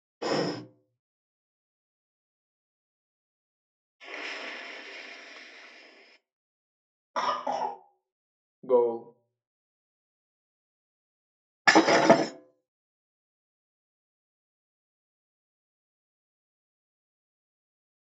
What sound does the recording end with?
shatter